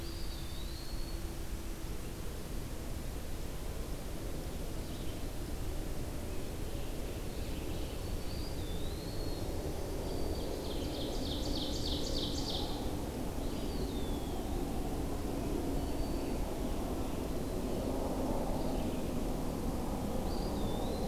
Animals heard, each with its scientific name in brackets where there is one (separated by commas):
Eastern Wood-Pewee (Contopus virens), Ovenbird (Seiurus aurocapilla), Red-eyed Vireo (Vireo olivaceus), Winter Wren (Troglodytes hiemalis)